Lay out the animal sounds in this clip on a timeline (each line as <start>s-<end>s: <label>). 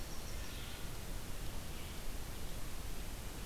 0.0s-0.8s: Winter Wren (Troglodytes hiemalis)
0.0s-3.5s: Red-eyed Vireo (Vireo olivaceus)